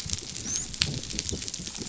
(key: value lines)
label: biophony, dolphin
recorder: SoundTrap 500